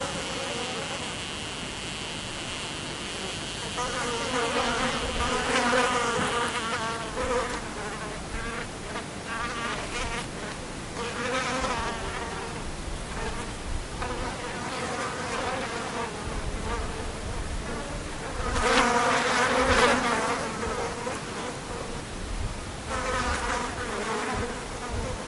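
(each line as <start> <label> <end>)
0.0 White noise from an outdoor area. 25.3
3.9 Insects buzzing loudly outdoors. 7.6
8.3 Insects buzzing quietly outdoors. 10.5
11.0 Insects buzzing outdoors at a steady level. 16.9
18.3 An insect buzzes loudly outdoors, slowly fading. 21.2
22.9 Insects buzz outdoors, slowly fading. 25.3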